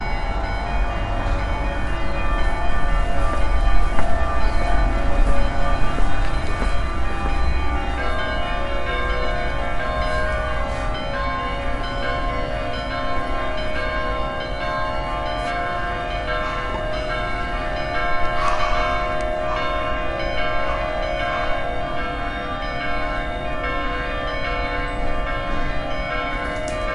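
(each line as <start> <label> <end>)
0.0 Church bells ringing loudly and repeatedly with a metallic and echoing sound. 26.9
15.9 A person inhales and exhales slowly. 23.0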